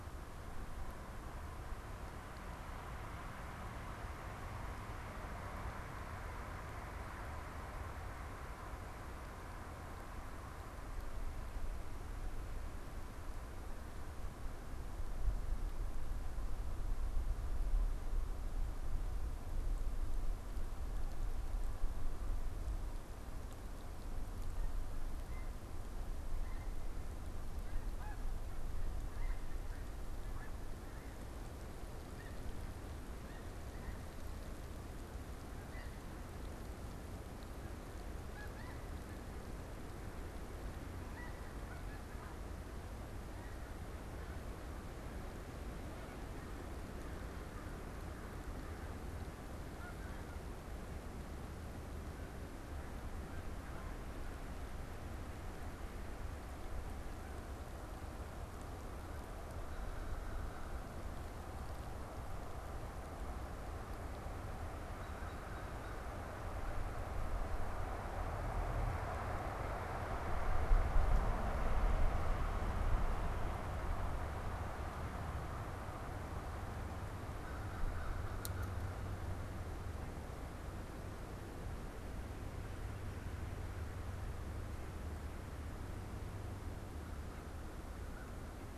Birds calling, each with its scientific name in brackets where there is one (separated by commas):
American Crow (Corvus brachyrhynchos), Snow Goose (Anser caerulescens), Tundra Swan (Cygnus columbianus)